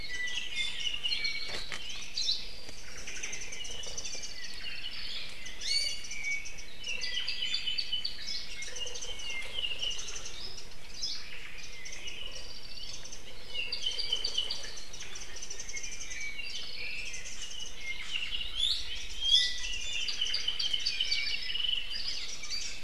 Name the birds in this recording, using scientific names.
Zosterops japonicus, Drepanis coccinea, Himatione sanguinea, Loxops mana, Myadestes obscurus